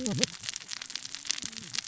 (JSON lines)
{"label": "biophony, cascading saw", "recorder": "SoundTrap 600 or HydroMoth"}